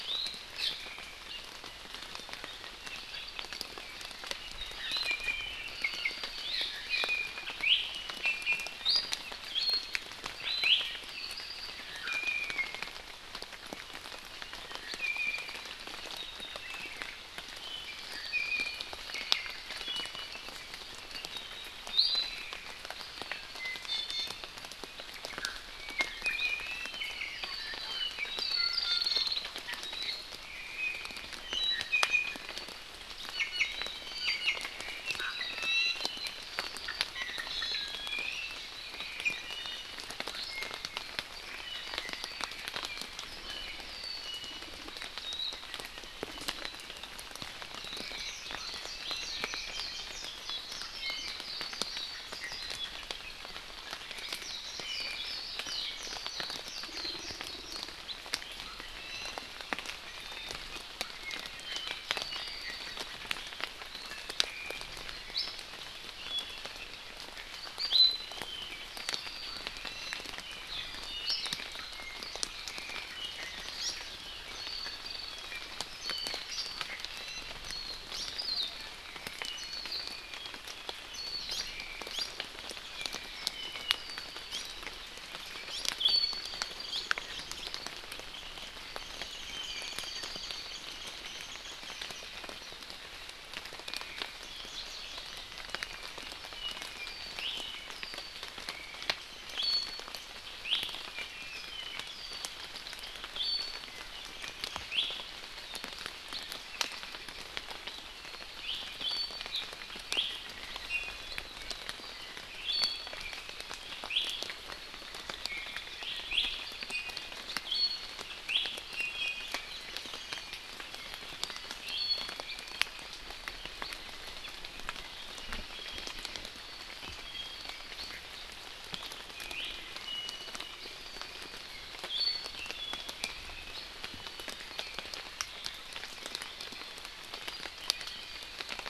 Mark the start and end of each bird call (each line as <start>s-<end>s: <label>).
0.0s-0.3s: Iiwi (Drepanis coccinea)
2.8s-3.7s: Apapane (Himatione sanguinea)
4.6s-6.1s: Iiwi (Drepanis coccinea)
6.4s-6.6s: Iiwi (Drepanis coccinea)
6.9s-9.1s: Iiwi (Drepanis coccinea)
9.5s-10.0s: Iiwi (Drepanis coccinea)
10.6s-10.8s: Iiwi (Drepanis coccinea)
11.1s-11.9s: Apapane (Himatione sanguinea)
12.0s-12.8s: Iiwi (Drepanis coccinea)
15.0s-15.6s: Iiwi (Drepanis coccinea)
17.6s-19.6s: Iiwi (Drepanis coccinea)
21.9s-22.5s: Iiwi (Drepanis coccinea)
23.6s-24.5s: Iiwi (Drepanis coccinea)
25.4s-30.2s: Iiwi (Drepanis coccinea)
31.4s-32.4s: Iiwi (Drepanis coccinea)
33.3s-33.7s: Iiwi (Drepanis coccinea)
34.0s-34.7s: Iiwi (Drepanis coccinea)
35.2s-36.0s: Iiwi (Drepanis coccinea)
37.1s-40.0s: Iiwi (Drepanis coccinea)
44.2s-44.7s: Iiwi (Drepanis coccinea)
45.2s-45.5s: Warbling White-eye (Zosterops japonicus)
47.8s-52.7s: Warbling White-eye (Zosterops japonicus)
52.4s-53.0s: Iiwi (Drepanis coccinea)
54.4s-58.0s: Warbling White-eye (Zosterops japonicus)
59.0s-59.5s: Iiwi (Drepanis coccinea)
61.1s-63.1s: Iiwi (Drepanis coccinea)
65.3s-65.6s: Iiwi (Drepanis coccinea)
67.8s-68.4s: Iiwi (Drepanis coccinea)
68.3s-69.6s: Apapane (Himatione sanguinea)
69.8s-71.6s: Iiwi (Drepanis coccinea)
72.5s-73.9s: Iiwi (Drepanis coccinea)
76.0s-76.4s: Warbling White-eye (Zosterops japonicus)
77.1s-77.5s: Iiwi (Drepanis coccinea)
77.7s-78.0s: Warbling White-eye (Zosterops japonicus)
78.1s-78.3s: Iiwi (Drepanis coccinea)
79.6s-79.9s: Warbling White-eye (Zosterops japonicus)
81.1s-81.4s: Warbling White-eye (Zosterops japonicus)
81.5s-81.6s: Iiwi (Drepanis coccinea)
82.1s-82.3s: Iiwi (Drepanis coccinea)
84.5s-84.7s: Iiwi (Drepanis coccinea)
85.7s-86.5s: Iiwi (Drepanis coccinea)
86.9s-87.0s: Iiwi (Drepanis coccinea)
97.3s-97.5s: Iiwi (Drepanis coccinea)
99.5s-100.0s: Iiwi (Drepanis coccinea)
100.6s-100.8s: Iiwi (Drepanis coccinea)
101.1s-102.5s: Apapane (Himatione sanguinea)
103.4s-103.9s: Iiwi (Drepanis coccinea)
104.9s-105.1s: Iiwi (Drepanis coccinea)
108.6s-109.4s: Iiwi (Drepanis coccinea)
110.1s-110.2s: Iiwi (Drepanis coccinea)
110.9s-111.3s: Iiwi (Drepanis coccinea)
112.6s-113.2s: Iiwi (Drepanis coccinea)
114.1s-114.2s: Iiwi (Drepanis coccinea)
115.4s-115.9s: Iiwi (Drepanis coccinea)
116.3s-116.5s: Iiwi (Drepanis coccinea)
116.9s-117.3s: Iiwi (Drepanis coccinea)
117.6s-118.2s: Iiwi (Drepanis coccinea)
118.5s-119.5s: Iiwi (Drepanis coccinea)
121.9s-122.5s: Iiwi (Drepanis coccinea)
129.5s-130.6s: Iiwi (Drepanis coccinea)
132.1s-132.5s: Iiwi (Drepanis coccinea)